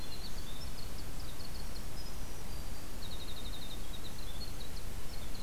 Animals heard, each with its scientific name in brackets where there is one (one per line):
Winter Wren (Troglodytes hiemalis)
Black-throated Green Warbler (Setophaga virens)
Swainson's Thrush (Catharus ustulatus)